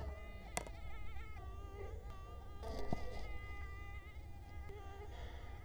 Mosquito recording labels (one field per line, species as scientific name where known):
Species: Culex quinquefasciatus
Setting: cup